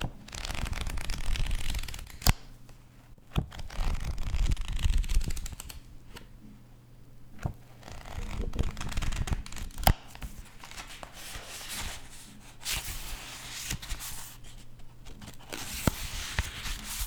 Is a dog barking?
no